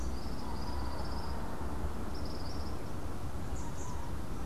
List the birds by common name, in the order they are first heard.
Tropical Kingbird